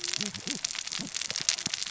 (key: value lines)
label: biophony, cascading saw
recorder: SoundTrap 600 or HydroMoth